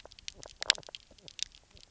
{"label": "biophony, knock croak", "recorder": "SoundTrap 300"}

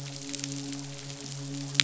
{"label": "biophony, midshipman", "recorder": "SoundTrap 500"}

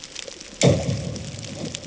{"label": "anthrophony, bomb", "recorder": "HydroMoth"}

